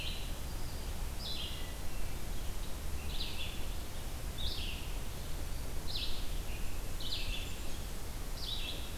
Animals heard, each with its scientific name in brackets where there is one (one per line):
Red-eyed Vireo (Vireo olivaceus)
Hermit Thrush (Catharus guttatus)
Blackburnian Warbler (Setophaga fusca)